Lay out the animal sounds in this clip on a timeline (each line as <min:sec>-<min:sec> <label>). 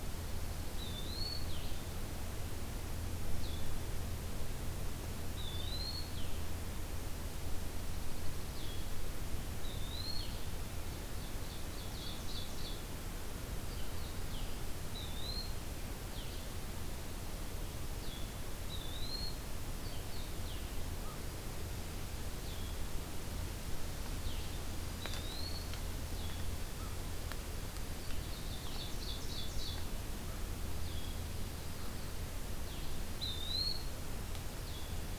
0:00.0-0:01.2 Dark-eyed Junco (Junco hyemalis)
0:00.0-0:26.5 Blue-headed Vireo (Vireo solitarius)
0:00.6-0:01.6 Eastern Wood-Pewee (Contopus virens)
0:05.3-0:06.2 Eastern Wood-Pewee (Contopus virens)
0:07.7-0:09.1 Dark-eyed Junco (Junco hyemalis)
0:09.5-0:10.3 Eastern Wood-Pewee (Contopus virens)
0:10.8-0:13.0 Ovenbird (Seiurus aurocapilla)
0:14.8-0:15.6 Eastern Wood-Pewee (Contopus virens)
0:18.6-0:19.4 Eastern Wood-Pewee (Contopus virens)
0:24.9-0:25.7 Eastern Wood-Pewee (Contopus virens)
0:27.0-0:28.2 Dark-eyed Junco (Junco hyemalis)
0:27.9-0:29.9 Ovenbird (Seiurus aurocapilla)
0:28.4-0:35.2 Blue-headed Vireo (Vireo solitarius)
0:30.7-0:32.1 Dark-eyed Junco (Junco hyemalis)
0:33.0-0:33.9 Eastern Wood-Pewee (Contopus virens)
0:34.7-0:35.2 Dark-eyed Junco (Junco hyemalis)